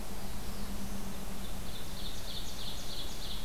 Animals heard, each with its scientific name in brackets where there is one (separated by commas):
Black-throated Blue Warbler (Setophaga caerulescens), Ovenbird (Seiurus aurocapilla)